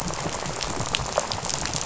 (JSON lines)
{"label": "biophony, rattle", "recorder": "SoundTrap 500"}